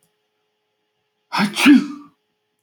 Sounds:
Sneeze